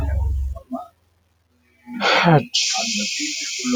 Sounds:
Sneeze